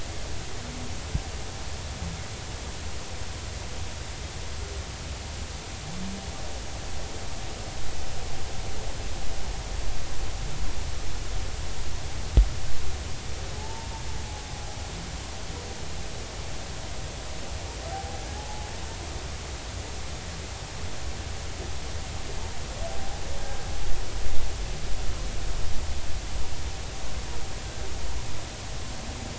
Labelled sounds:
13.6	13.9	humpback whale, 0.80 to 0.96 kHz
18.3	18.7	humpback whale, 0.80 to 0.90 kHz

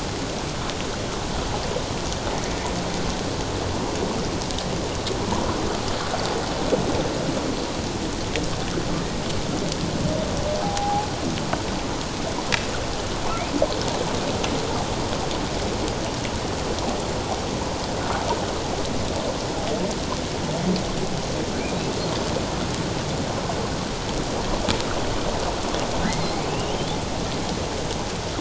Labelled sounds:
10.6	11.1	humpback whale, 0.78 to 0.91 kHz
26.0	26.9	humpback whale, 1.5 to 3.3 kHz

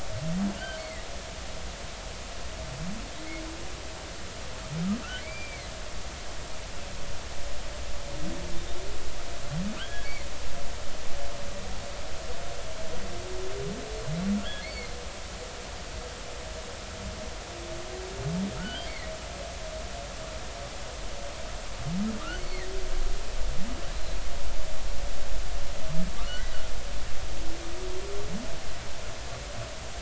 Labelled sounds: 0.6	1.1	humpback whale, 1.9 to 3.2 kHz
5.2	5.7	humpback whale, 2.0 to 2.4 kHz
9.8	10.1	humpback whale, 1.3 to 3.4 kHz
14.6	14.9	humpback whale, 2.0 to 4.6 kHz
18.6	18.9	humpback whale, 1.2 to 3.3 kHz
22.3	22.7	humpback whale, 1.8 to 4.5 kHz
26.2	26.5	humpback whale, 1.1 to 1.6 kHz

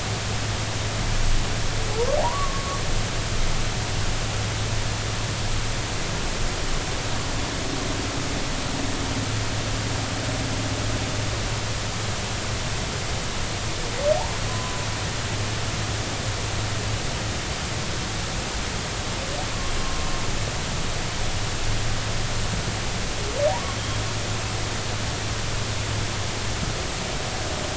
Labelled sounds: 1.9	2.7	humpback whale, 0.80 to 1.2 kHz
14.5	14.8	humpback whale, 0.96 to 1.1 kHz
19.8	20.0	humpback whale, 1.0 to 1.1 kHz
23.5	24.0	humpback whale, 0.80 to 3.3 kHz

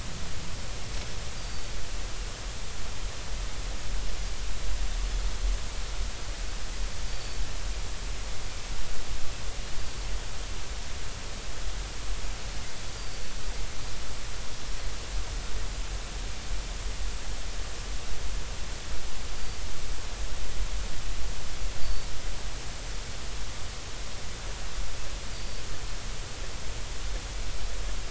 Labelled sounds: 1.4	1.7	Pacific white-sided dolphin, 4.4 to 4.9 kHz
7.1	7.4	Pacific white-sided dolphin, 4.4 to 4.7 kHz
13.0	13.2	Pacific white-sided dolphin, 4.5 to 4.9 kHz
19.3	19.6	Pacific white-sided dolphin, 4.5 to 4.7 kHz
21.8	22.1	Pacific white-sided dolphin, 4.4 to 4.7 kHz
25.3	25.6	Pacific white-sided dolphin, 4.6 to 4.9 kHz

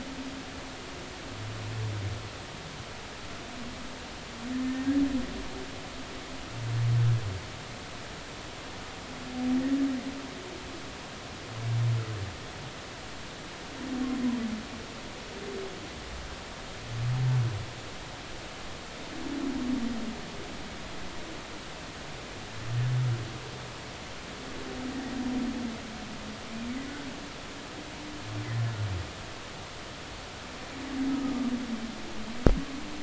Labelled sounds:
31.1	31.3	humpback whale, 1.2 to 1.3 kHz

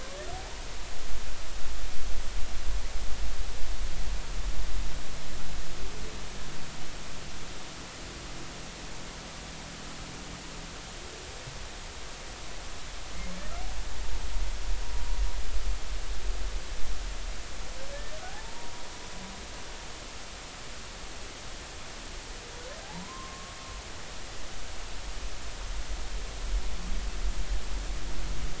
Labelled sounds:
18.2	18.8	humpback whale, 0.80 to 1.0 kHz
22.8	23.6	humpback whale, 0.80 to 1.2 kHz

